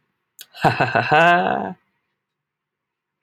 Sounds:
Laughter